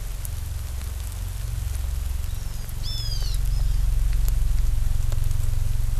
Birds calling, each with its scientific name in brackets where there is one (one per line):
Hawaiian Hawk (Buteo solitarius)